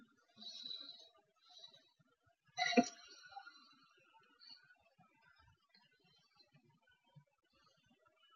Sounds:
Sniff